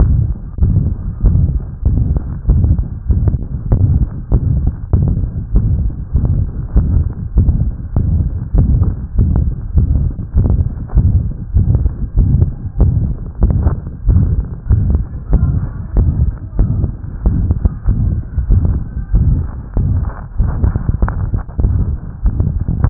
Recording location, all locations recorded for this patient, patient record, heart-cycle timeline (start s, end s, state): tricuspid valve (TV)
aortic valve (AV)+pulmonary valve (PV)+tricuspid valve (TV)+mitral valve (MV)
#Age: Child
#Sex: Female
#Height: 103.0 cm
#Weight: 13.1 kg
#Pregnancy status: False
#Murmur: Present
#Murmur locations: aortic valve (AV)+mitral valve (MV)+pulmonary valve (PV)+tricuspid valve (TV)
#Most audible location: tricuspid valve (TV)
#Systolic murmur timing: Holosystolic
#Systolic murmur shape: Diamond
#Systolic murmur grading: III/VI or higher
#Systolic murmur pitch: High
#Systolic murmur quality: Harsh
#Diastolic murmur timing: nan
#Diastolic murmur shape: nan
#Diastolic murmur grading: nan
#Diastolic murmur pitch: nan
#Diastolic murmur quality: nan
#Outcome: Abnormal
#Campaign: 2015 screening campaign
0.00	0.54	unannotated
0.54	0.70	S1
0.70	0.86	systole
0.86	0.96	S2
0.96	1.17	diastole
1.17	1.42	S1
1.42	1.50	systole
1.50	1.62	S2
1.62	1.79	diastole
1.79	2.02	S1
2.02	2.08	systole
2.08	2.22	S2
2.22	2.43	diastole
2.43	2.60	S1
2.60	2.73	systole
2.73	2.88	S2
2.88	3.04	diastole
3.04	3.20	S1
3.20	3.32	systole
3.32	3.46	S2
3.46	3.66	diastole
3.66	3.81	S1
3.81	3.95	systole
3.95	4.08	S2
4.08	4.28	diastole
4.28	4.40	S1
4.40	4.62	systole
4.62	4.75	S2
4.75	4.89	diastole
4.89	5.04	S1
5.04	5.18	systole
5.18	5.30	S2
5.30	5.49	diastole
5.49	5.66	S1
5.66	22.90	unannotated